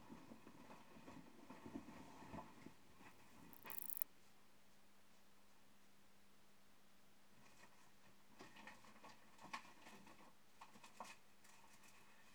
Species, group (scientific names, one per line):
Metrioptera prenjica
Orthoptera